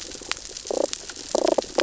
{"label": "biophony, damselfish", "recorder": "SoundTrap 600 or HydroMoth"}
{"label": "biophony, sea urchins (Echinidae)", "recorder": "SoundTrap 600 or HydroMoth"}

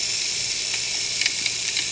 {"label": "anthrophony, boat engine", "recorder": "HydroMoth"}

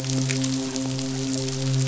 {"label": "biophony, midshipman", "recorder": "SoundTrap 500"}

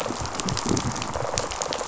{"label": "biophony, rattle response", "recorder": "SoundTrap 500"}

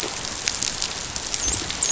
{"label": "biophony, dolphin", "recorder": "SoundTrap 500"}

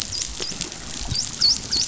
{"label": "biophony, dolphin", "recorder": "SoundTrap 500"}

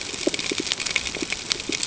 {"label": "ambient", "recorder": "HydroMoth"}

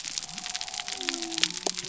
{"label": "biophony", "recorder": "SoundTrap 300"}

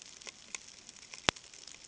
{"label": "ambient", "recorder": "HydroMoth"}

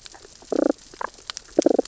{"label": "biophony, damselfish", "recorder": "SoundTrap 600 or HydroMoth"}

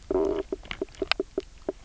{"label": "biophony, knock croak", "recorder": "SoundTrap 300"}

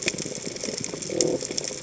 {"label": "biophony", "recorder": "HydroMoth"}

